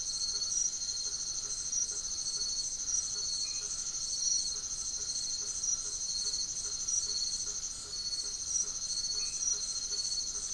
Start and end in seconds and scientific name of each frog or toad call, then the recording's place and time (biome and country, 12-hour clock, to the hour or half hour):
0.0	10.5	Boana faber
0.0	10.5	Scinax alter
3.3	3.8	Boana albomarginata
9.0	9.8	Boana albomarginata
Atlantic Forest, Brazil, 8:30pm